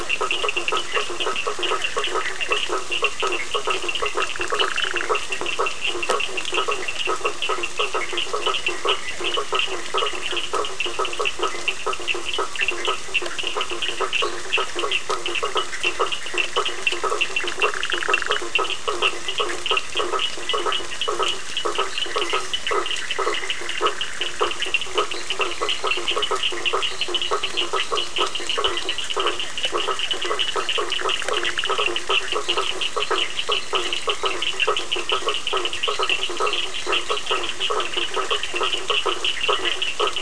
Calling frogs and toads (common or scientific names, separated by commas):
Bischoff's tree frog, Physalaemus cuvieri, blacksmith tree frog, Cochran's lime tree frog, fine-lined tree frog